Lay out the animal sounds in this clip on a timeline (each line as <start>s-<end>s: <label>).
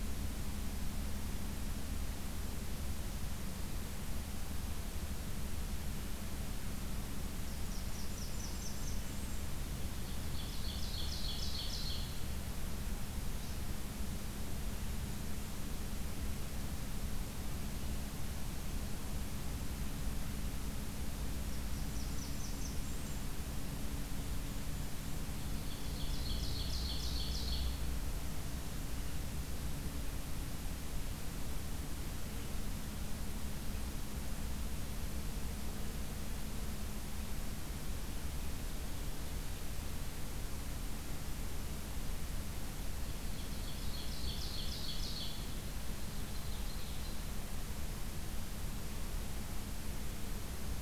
7.0s-9.5s: Blackburnian Warbler (Setophaga fusca)
9.9s-12.3s: Ovenbird (Seiurus aurocapilla)
21.3s-23.2s: Blackburnian Warbler (Setophaga fusca)
23.9s-25.5s: Golden-crowned Kinglet (Regulus satrapa)
25.3s-27.9s: Ovenbird (Seiurus aurocapilla)
42.7s-47.3s: Ovenbird (Seiurus aurocapilla)